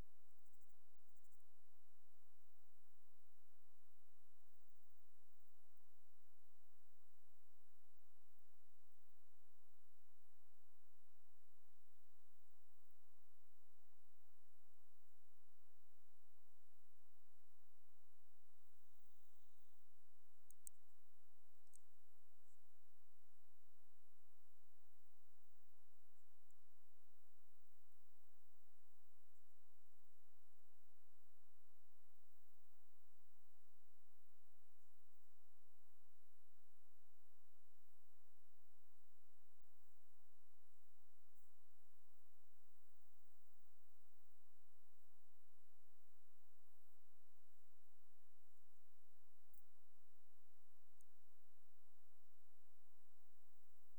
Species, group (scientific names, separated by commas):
Omocestus bolivari, Orthoptera